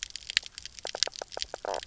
{"label": "biophony, knock croak", "recorder": "SoundTrap 300"}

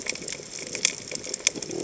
{"label": "biophony", "recorder": "HydroMoth"}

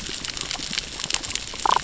{"label": "biophony, damselfish", "recorder": "SoundTrap 600 or HydroMoth"}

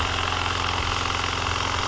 {"label": "anthrophony, boat engine", "recorder": "SoundTrap 300"}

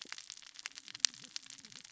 {"label": "biophony, cascading saw", "recorder": "SoundTrap 600 or HydroMoth"}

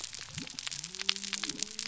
{"label": "biophony", "recorder": "SoundTrap 300"}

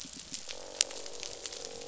{"label": "biophony, croak", "recorder": "SoundTrap 500"}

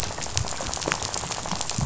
{"label": "biophony, rattle", "recorder": "SoundTrap 500"}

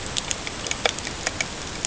{"label": "ambient", "recorder": "HydroMoth"}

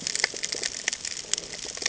{"label": "ambient", "recorder": "HydroMoth"}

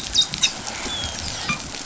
{"label": "biophony, dolphin", "recorder": "SoundTrap 500"}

